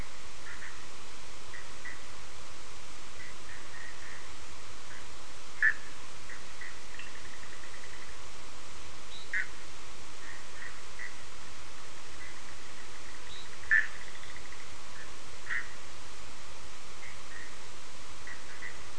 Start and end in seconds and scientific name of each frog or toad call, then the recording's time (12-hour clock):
0.0	18.9	Boana bischoffi
6.8	7.3	Sphaenorhynchus surdus
8.9	9.4	Boana leptolineata
13.1	13.7	Boana leptolineata
2:30am